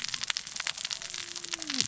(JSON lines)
{"label": "biophony, cascading saw", "recorder": "SoundTrap 600 or HydroMoth"}